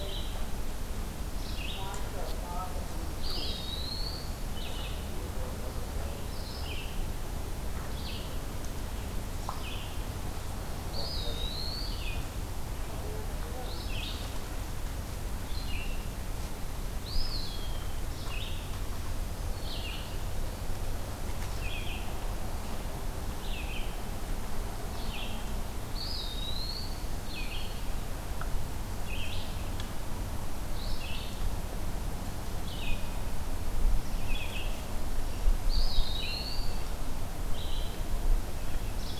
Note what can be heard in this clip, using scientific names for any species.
Vireo olivaceus, Contopus virens